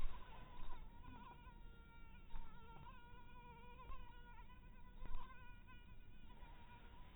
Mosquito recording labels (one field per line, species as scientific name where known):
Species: mosquito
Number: one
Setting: cup